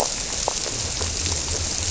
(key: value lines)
label: biophony
recorder: SoundTrap 300